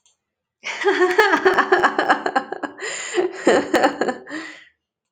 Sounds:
Laughter